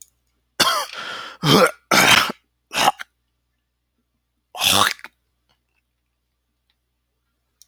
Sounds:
Throat clearing